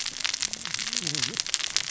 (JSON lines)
{"label": "biophony, cascading saw", "recorder": "SoundTrap 600 or HydroMoth"}